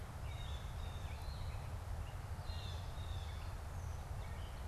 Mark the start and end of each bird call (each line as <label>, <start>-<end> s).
Blue Jay (Cyanocitta cristata), 0.0-3.8 s
Gray Catbird (Dumetella carolinensis), 0.0-4.7 s